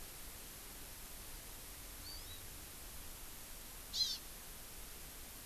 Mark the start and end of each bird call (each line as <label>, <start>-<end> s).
Hawaii Amakihi (Chlorodrepanis virens), 2.0-2.4 s
Hawaii Amakihi (Chlorodrepanis virens), 3.9-4.2 s